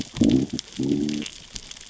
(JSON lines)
{"label": "biophony, growl", "recorder": "SoundTrap 600 or HydroMoth"}